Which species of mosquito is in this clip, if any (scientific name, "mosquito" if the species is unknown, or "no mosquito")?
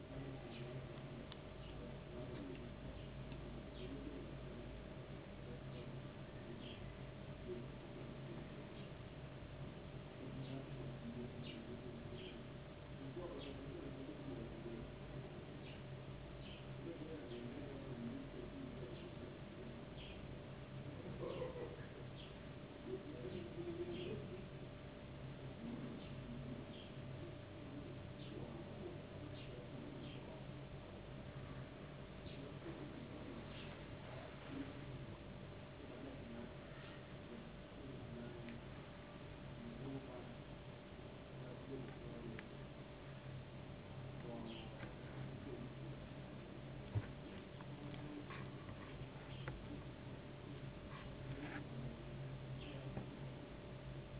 no mosquito